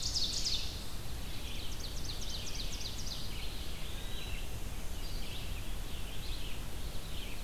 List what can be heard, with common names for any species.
Ovenbird, Red-eyed Vireo, Eastern Wood-Pewee